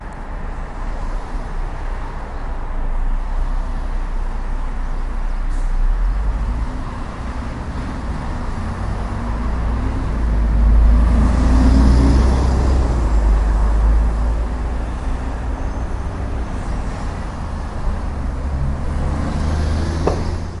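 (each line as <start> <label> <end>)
0.0 A large group of vehicles creates loud traffic noise outdoors. 20.6
2.1 A muffled sound of birds in the distance. 8.7
10.0 A vehicle passes by loudly and very close. 14.8
20.0 A dull thumping sound. 20.2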